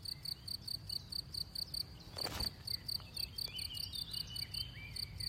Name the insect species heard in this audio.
Gryllus campestris